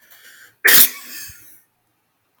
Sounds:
Sneeze